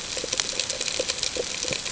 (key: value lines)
label: ambient
recorder: HydroMoth